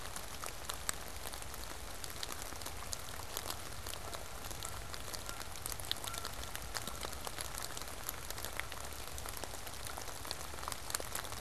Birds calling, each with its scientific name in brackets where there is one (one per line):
Canada Goose (Branta canadensis)